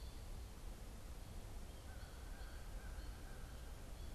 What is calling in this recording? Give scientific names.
Spinus tristis, Corvus brachyrhynchos